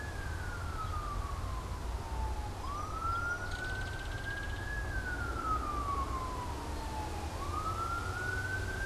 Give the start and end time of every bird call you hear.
2.6s-3.8s: Song Sparrow (Melospiza melodia)
3.3s-4.8s: Belted Kingfisher (Megaceryle alcyon)

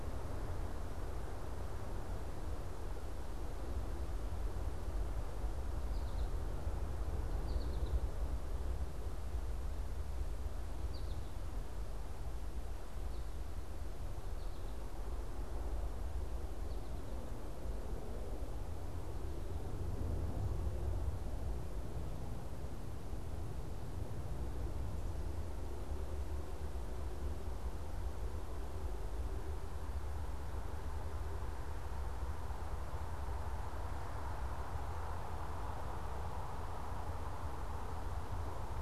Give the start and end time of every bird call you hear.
5.6s-11.4s: American Goldfinch (Spinus tristis)

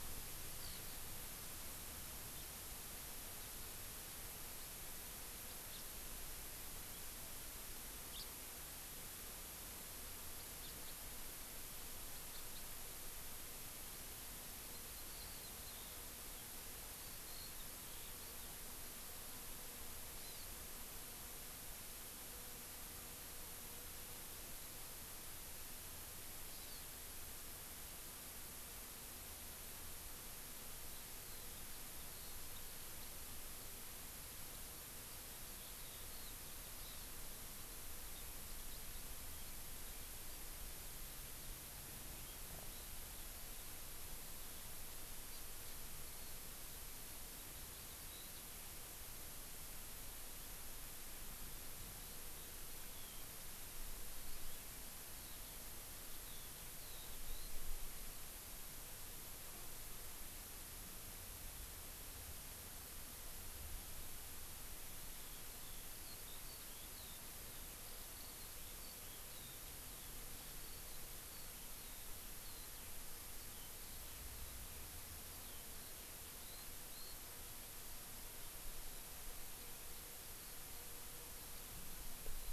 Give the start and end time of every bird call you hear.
0.6s-1.0s: Eurasian Skylark (Alauda arvensis)
5.4s-5.9s: House Finch (Haemorhous mexicanus)
8.1s-8.3s: House Finch (Haemorhous mexicanus)
10.6s-10.9s: House Finch (Haemorhous mexicanus)
12.1s-12.6s: House Finch (Haemorhous mexicanus)
14.7s-15.8s: Hawaii Amakihi (Chlorodrepanis virens)
17.0s-18.9s: Eurasian Skylark (Alauda arvensis)
20.2s-20.5s: Hawaii Amakihi (Chlorodrepanis virens)
26.5s-26.9s: Hawaii Amakihi (Chlorodrepanis virens)
31.2s-33.2s: Eurasian Skylark (Alauda arvensis)
35.4s-40.0s: Eurasian Skylark (Alauda arvensis)
36.1s-36.4s: Hawaii Amakihi (Chlorodrepanis virens)
36.8s-37.1s: Hawaii Amakihi (Chlorodrepanis virens)
45.3s-45.4s: Hawaii Amakihi (Chlorodrepanis virens)
46.1s-48.5s: Eurasian Skylark (Alauda arvensis)
51.5s-53.4s: Eurasian Skylark (Alauda arvensis)
55.2s-57.5s: Eurasian Skylark (Alauda arvensis)
65.2s-73.7s: Eurasian Skylark (Alauda arvensis)
75.3s-77.2s: Eurasian Skylark (Alauda arvensis)

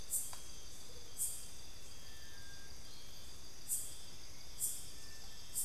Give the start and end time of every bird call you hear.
0.0s-5.6s: Amazonian Motmot (Momotus momota)

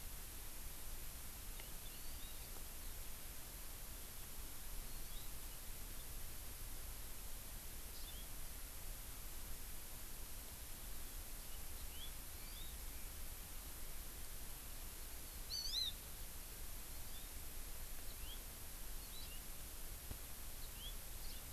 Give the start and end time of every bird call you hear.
1.9s-2.4s: Hawaii Amakihi (Chlorodrepanis virens)
4.9s-5.3s: Hawaii Amakihi (Chlorodrepanis virens)
8.0s-8.2s: House Finch (Haemorhous mexicanus)
11.7s-12.1s: House Finch (Haemorhous mexicanus)
12.3s-12.7s: Hawaii Amakihi (Chlorodrepanis virens)
15.4s-15.9s: Hawaii Amakihi (Chlorodrepanis virens)
16.9s-17.2s: Hawaii Amakihi (Chlorodrepanis virens)
18.1s-18.4s: House Finch (Haemorhous mexicanus)
19.1s-19.4s: House Finch (Haemorhous mexicanus)
20.6s-20.9s: House Finch (Haemorhous mexicanus)
21.2s-21.4s: Hawaii Amakihi (Chlorodrepanis virens)

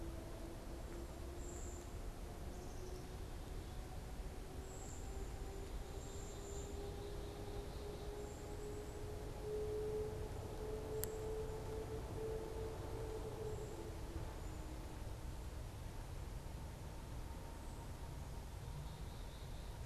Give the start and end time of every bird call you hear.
0.0s-6.8s: Cedar Waxwing (Bombycilla cedrorum)
5.9s-8.4s: Black-capped Chickadee (Poecile atricapillus)
8.5s-14.8s: Cedar Waxwing (Bombycilla cedrorum)
18.3s-19.8s: Black-capped Chickadee (Poecile atricapillus)

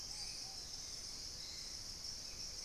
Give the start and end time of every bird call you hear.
0.0s-2.6s: Hauxwell's Thrush (Turdus hauxwelli)
0.0s-2.6s: Ruddy Pigeon (Patagioenas subvinacea)
0.5s-2.6s: Dusky-capped Greenlet (Pachysylvia hypoxantha)

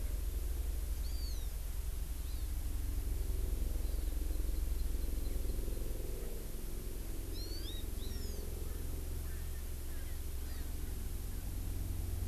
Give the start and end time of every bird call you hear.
1.0s-1.5s: Hawaii Amakihi (Chlorodrepanis virens)
2.2s-2.4s: Hawaii Amakihi (Chlorodrepanis virens)
3.8s-5.8s: Hawaii Amakihi (Chlorodrepanis virens)
7.3s-8.4s: Hawaii Amakihi (Chlorodrepanis virens)
8.0s-8.3s: Erckel's Francolin (Pternistis erckelii)
8.6s-8.9s: Erckel's Francolin (Pternistis erckelii)
9.2s-10.2s: Erckel's Francolin (Pternistis erckelii)

